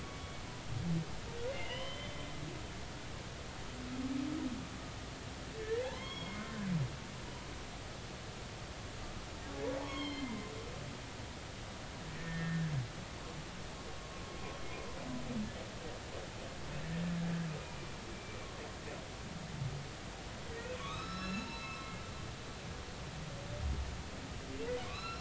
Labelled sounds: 1.5	2.2	humpback whale, 0.93 to 3.2 kHz
5.8	6.4	humpback whale, 0.80 to 3.4 kHz
9.8	10.5	humpback whale, 0.96 to 5.5 kHz
12.2	12.7	humpback whale, 1.6 to 1.9 kHz
18.1	18.4	humpback whale, 2.3 to 2.4 kHz
20.7	21.9	humpback whale, 0.96 to 6.7 kHz
24.8	25.1	humpback whale, 1.0 to 5.5 kHz

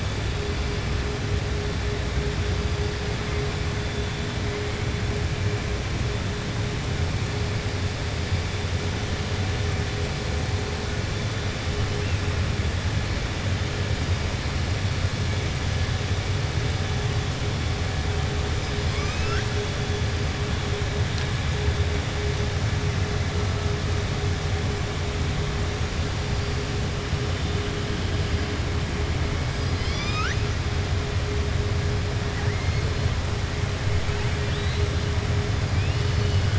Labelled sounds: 18.6	19.5	killer whale, southern resident, 1.2 to 6.5 kHz
29.6	30.3	killer whale, southern resident, 1.2 to 7.3 kHz
34.0	34.8	killer whale, southern resident, 1.5 to 4.2 kHz

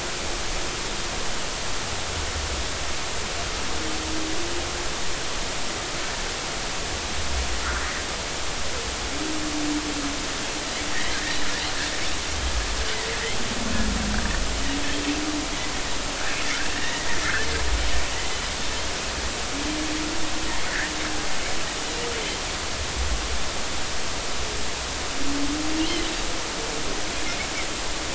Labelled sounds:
11.1	11.4	Pacific white-sided dolphin, 1.5 to 1.9 kHz
16.7	17.5	Pacific white-sided dolphin, 1.3 to 2.0 kHz
25.8	26.0	Pacific white-sided dolphin, 2.8 to 3.3 kHz

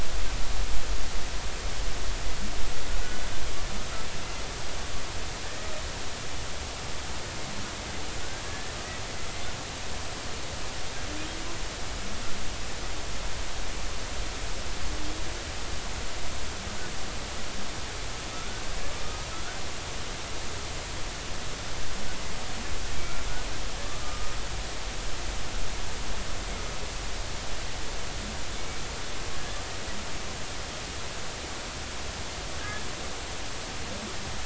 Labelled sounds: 5.4	5.7	humpback whale, 1.7 to 2.0 kHz
8.5	8.7	humpback whale, 1.6 to 1.8 kHz
18.3	19.6	humpback whale, 1.2 to 1.6 kHz
24.0	24.3	humpback whale, 1.2 to 1.3 kHz

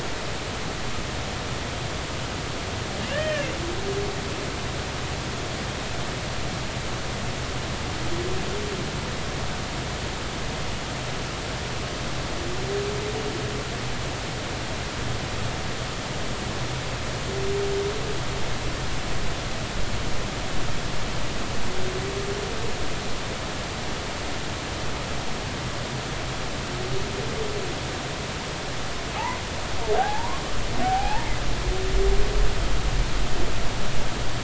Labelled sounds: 3.1	3.5	humpback whale, 1.6 to 3.2 kHz
29.2	29.4	humpback whale, 0.80 to 1.1 kHz
30.0	30.4	humpback whale, 0.80 to 1.2 kHz
30.8	31.3	humpback whale, 0.80 to 1.7 kHz

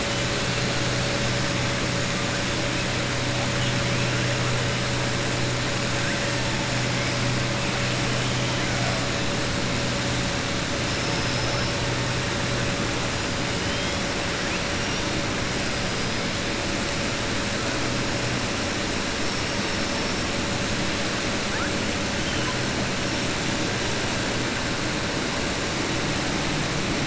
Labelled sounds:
13.6	14.0	killer whale, southern resident, 2.9 to 3.4 kHz

